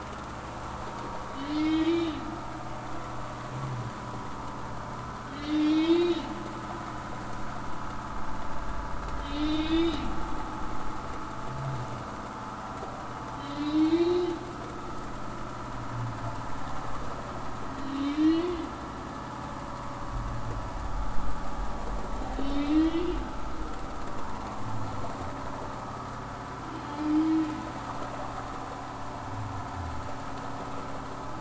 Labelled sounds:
1.5	2.2	humpback whale, 1.8 to 3.8 kHz
5.4	6.2	humpback whale, 1.9 to 4.2 kHz
9.2	10.0	humpback whale, 2.1 to 5.2 kHz
13.4	14.3	humpback whale, 2.1 to 4.2 kHz
17.9	18.7	humpback whale, 1.8 to 4.7 kHz
22.4	23.1	humpback whale, 1.9 to 3.9 kHz
27.1	27.3	humpback whale, 3.0 to 3.3 kHz

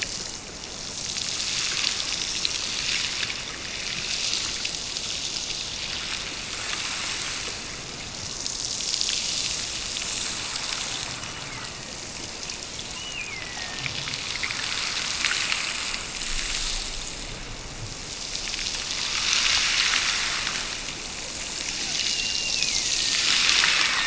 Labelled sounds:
11.1	12.1	killer whale, Bigg's (transient), Gulf of Alaska transient, 1.7 to 3.0 kHz
12.8	14.1	killer whale, Bigg's (transient), Gulf of Alaska transient, 1.7 to 3.0 kHz
21.9	23.3	killer whale, Bigg's (transient), Gulf of Alaska transient, 1.7 to 3.0 kHz

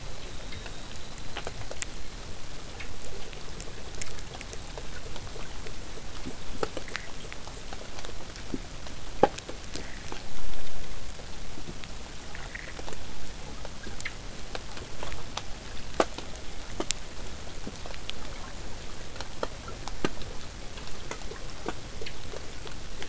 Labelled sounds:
0.0	2.2	killer whale, southern resident, whistle, 3.4 to 4.4 kHz
5.3	7.7	killer whale, southern resident, 6.3 to 8.0 kHz

